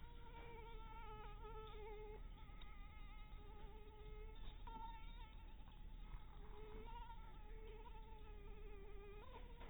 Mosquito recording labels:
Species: Anopheles dirus; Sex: female; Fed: unfed; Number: one; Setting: cup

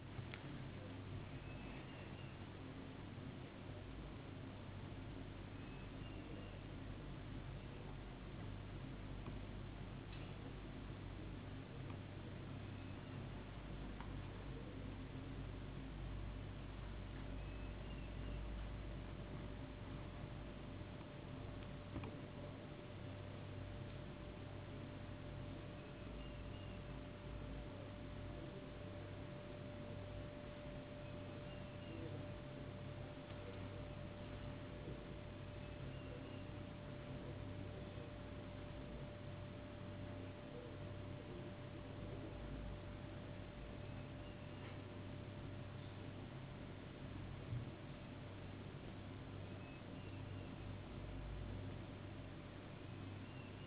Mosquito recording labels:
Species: no mosquito; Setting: insect culture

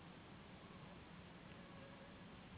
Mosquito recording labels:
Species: Anopheles gambiae s.s.; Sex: female; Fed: unfed; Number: one; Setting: insect culture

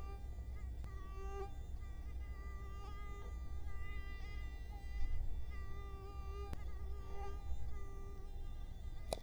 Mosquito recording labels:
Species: Culex quinquefasciatus; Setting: cup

